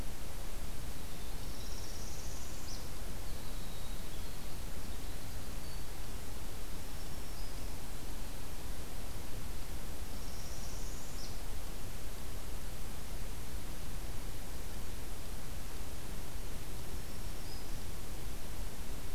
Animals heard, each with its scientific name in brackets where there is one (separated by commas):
Winter Wren (Troglodytes hiemalis), Northern Parula (Setophaga americana), Black-throated Green Warbler (Setophaga virens)